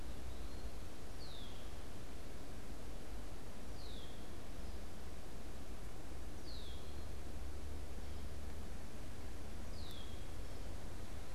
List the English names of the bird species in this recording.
Eastern Wood-Pewee, Red-winged Blackbird